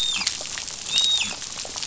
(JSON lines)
{"label": "biophony, dolphin", "recorder": "SoundTrap 500"}